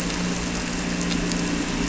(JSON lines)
{"label": "anthrophony, boat engine", "recorder": "SoundTrap 300"}